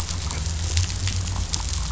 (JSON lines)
{"label": "anthrophony, boat engine", "recorder": "SoundTrap 500"}